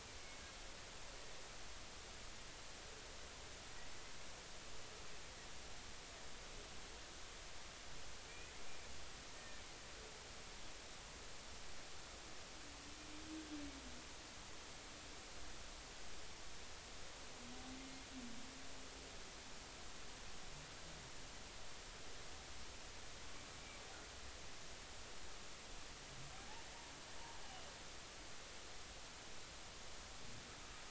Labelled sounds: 8.3	8.5	humpback whale, 2.3 to 2.6 kHz
9.4	9.6	humpback whale, 1.7 to 1.9 kHz

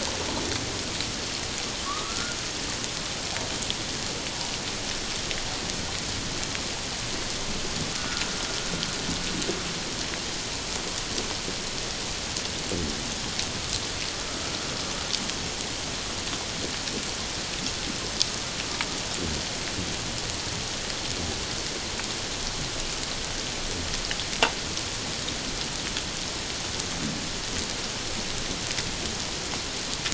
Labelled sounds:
1.8	2.4	humpback whale, 1.0 to 1.5 kHz
7.9	8.3	humpback whale, 1.2 to 1.5 kHz

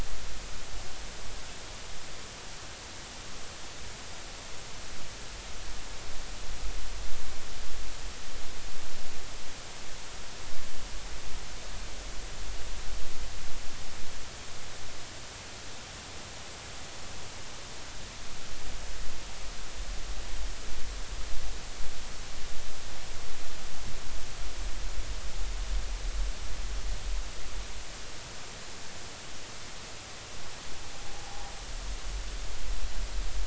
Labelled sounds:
31.2	31.5	noise likely from the mooring, 0.80 to 0.99 kHz

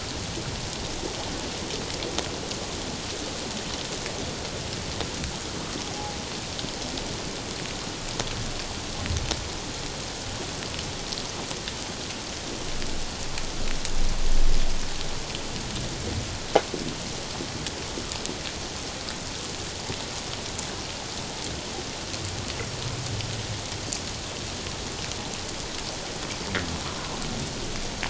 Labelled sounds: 5.9	6.2	humpback whale, 0.78 to 0.91 kHz

